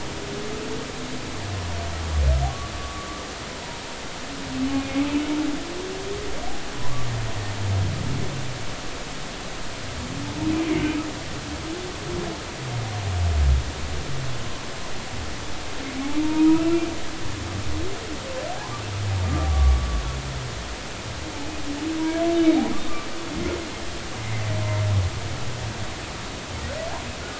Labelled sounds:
2.8	3.1	humpback whale, 1.1 to 1.2 kHz
4.7	5.0	humpback whale, 2.4 to 2.5 kHz
10.6	10.9	humpback whale, 2.0 to 2.3 kHz
16.0	16.9	humpback whale, 0.80 to 2.8 kHz
19.5	19.9	humpback whale, 1.1 to 1.2 kHz
24.2	24.5	humpback whale, 2.0 to 2.2 kHz

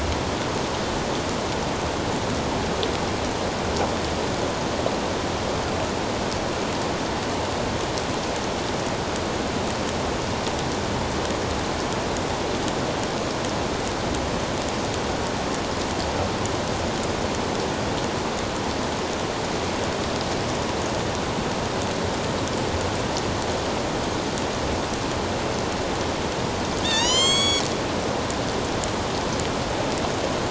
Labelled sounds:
26.8	27.6	killer whale, northern resident, A clan, AB subclan, 0.84 to 7.9 kHz

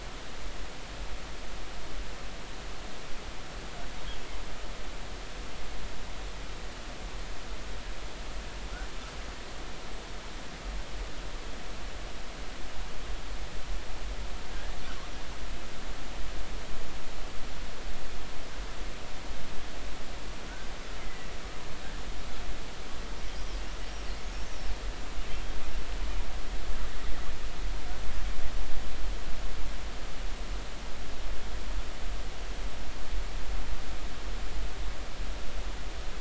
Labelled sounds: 14.5	14.8	killer whale, northern resident, 1.5 to 1.9 kHz
21.0	21.3	killer whale, northern resident, 1.9 to 2.1 kHz

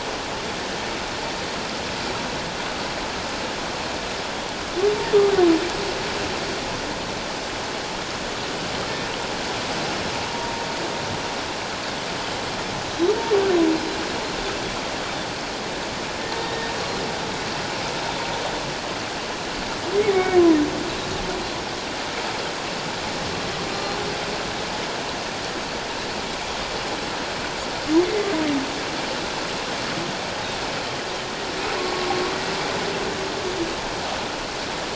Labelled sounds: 10.2	10.5	humpback whale, 0.88 to 1.1 kHz
16.4	16.7	humpback whale, 1.7 to 1.9 kHz
20.0	20.4	humpback whale, 2.1 to 2.3 kHz
23.7	24.0	humpback whale, 4.0 to 4.2 kHz

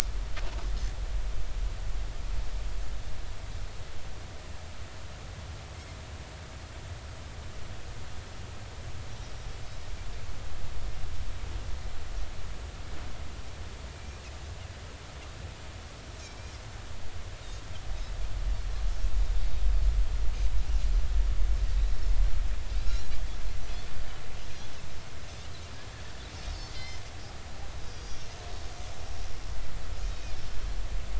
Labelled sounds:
13.9	14.2	Pacific white-sided dolphin, 2.3 to 2.5 kHz
26.7	27.0	Pacific white-sided dolphin, 2.0 to 5.3 kHz
27.8	28.3	Pacific white-sided dolphin, 4.7 to 5.8 kHz

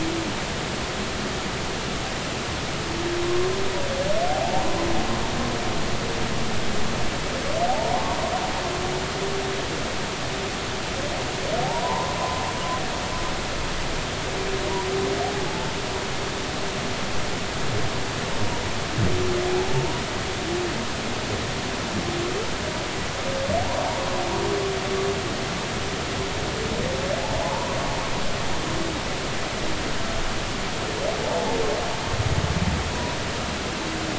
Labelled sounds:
4.3	4.7	humpback whale, 0.80 to 0.96 kHz
7.7	8.0	humpback whale, 0.80 to 1.1 kHz
11.6	12.2	humpback whale, 0.80 to 1.1 kHz
13.2	13.4	humpback whale, 0.96 to 1.1 kHz
27.4	27.8	humpback whale, 0.80 to 1.1 kHz
32.9	33.2	humpback whale, 0.93 to 1.0 kHz

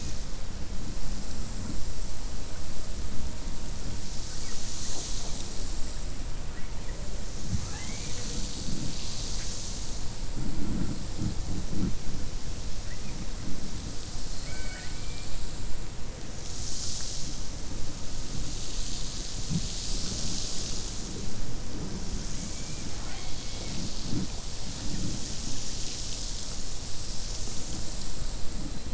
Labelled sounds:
14.3	15.3	killer whale, 0.61 to 4.3 kHz
22.9	23.8	killer whale, 0.72 to 3.3 kHz

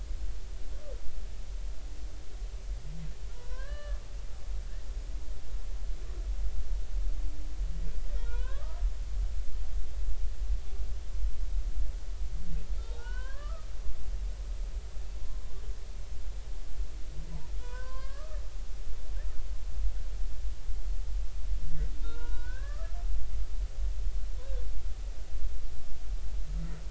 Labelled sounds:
3.3	4.0	humpback whale, 0.93 to 4.2 kHz
8.2	8.8	humpback whale, 0.90 to 2.6 kHz
12.8	13.7	humpback whale, 0.80 to 3.8 kHz
17.6	18.4	humpback whale, 0.93 to 4.8 kHz
22.0	23.0	humpback whale, 0.90 to 3.8 kHz

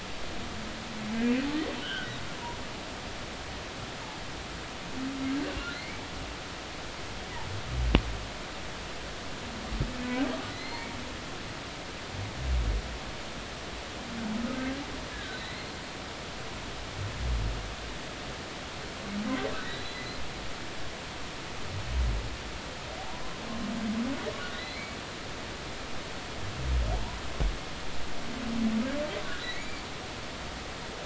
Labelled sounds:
1.8	2.1	humpback whale, 1.4 to 3.4 kHz
5.7	6.0	humpback whale, 2.0 to 2.3 kHz
10.5	10.9	humpback whale, 1.9 to 4.3 kHz
14.5	14.8	humpback whale, 1.5 to 1.7 kHz
15.1	15.4	humpback whale, 1.4 to 1.8 kHz
16.3	16.7	humpback whale, 3.8 to 4.3 kHz
19.5	20.1	humpback whale, 2.0 to 4.1 kHz
23.0	23.4	humpback whale, 0.80 to 1.1 kHz
24.5	25.0	humpback whale, 1.8 to 4.2 kHz
26.9	27.2	humpback whale, 0.80 to 1.0 kHz
29.5	29.8	humpback whale, 2.1 to 2.4 kHz

